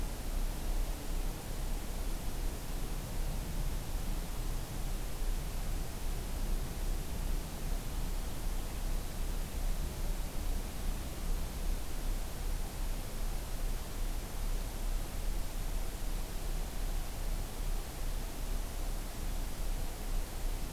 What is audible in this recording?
forest ambience